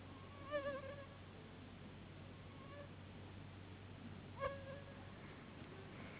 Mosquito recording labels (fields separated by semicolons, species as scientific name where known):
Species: Anopheles gambiae s.s.; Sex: female; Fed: unfed; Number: one; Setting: insect culture